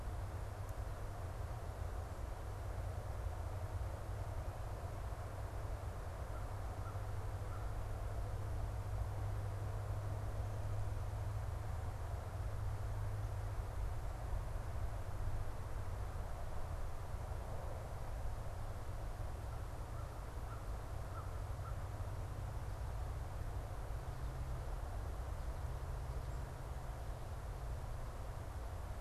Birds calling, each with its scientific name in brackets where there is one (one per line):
American Crow (Corvus brachyrhynchos)